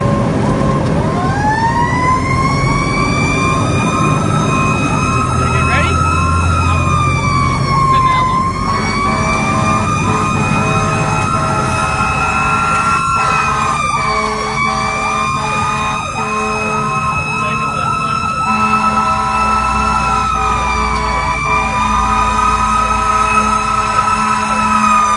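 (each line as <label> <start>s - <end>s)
Truck engine accelerating. 0.0s - 10.1s
A siren wails slowly on a street. 1.2s - 25.2s
A woman is speaking. 5.6s - 5.9s
An emergency vehicle siren wails with a high-pitched, steady rhythm. 5.6s - 25.2s
A truck horn honks urgently with a low pitch. 8.6s - 16.4s
A truck horn honks urgently. 18.5s - 25.2s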